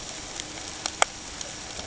{"label": "ambient", "recorder": "HydroMoth"}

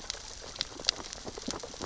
{"label": "biophony, sea urchins (Echinidae)", "recorder": "SoundTrap 600 or HydroMoth"}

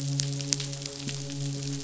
{"label": "biophony, midshipman", "recorder": "SoundTrap 500"}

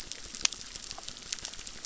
{"label": "biophony, crackle", "recorder": "SoundTrap 600"}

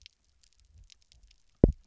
{"label": "biophony, double pulse", "recorder": "SoundTrap 300"}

